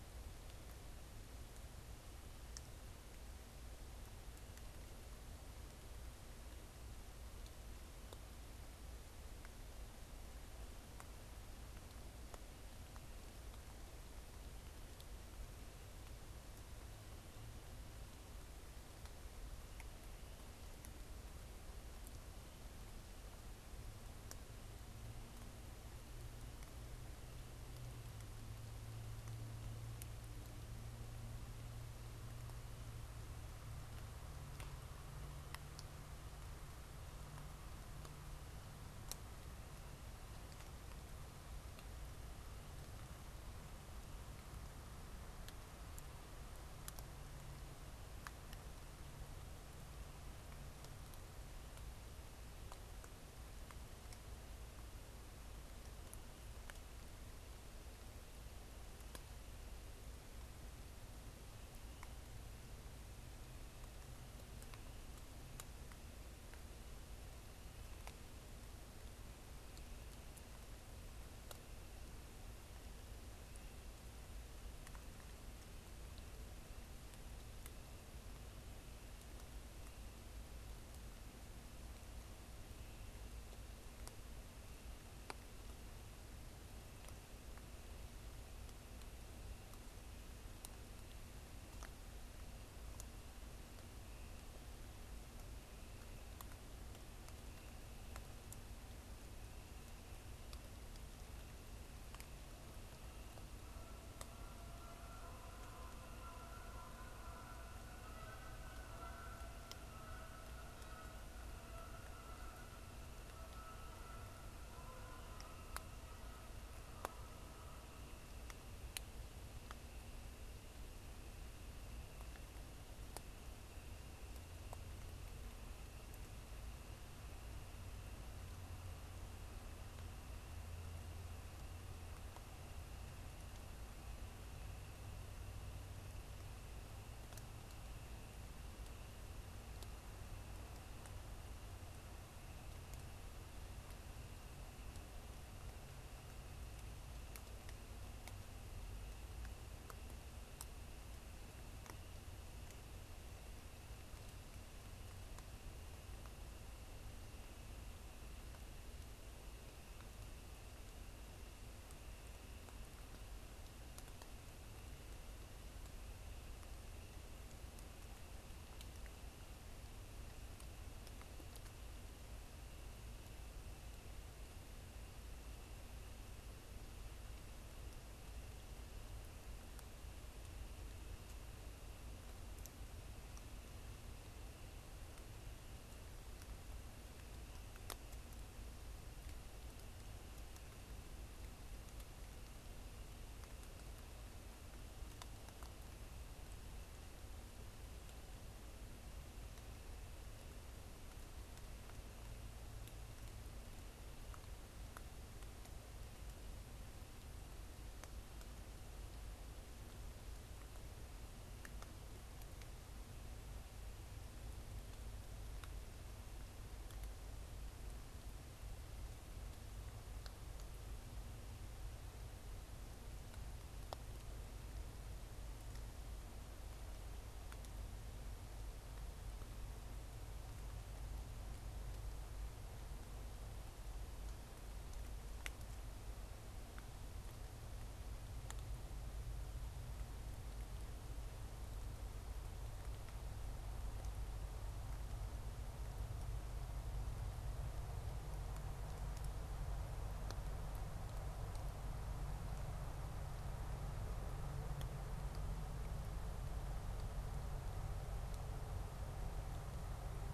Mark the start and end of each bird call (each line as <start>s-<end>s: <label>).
103.4s-118.2s: Canada Goose (Branta canadensis)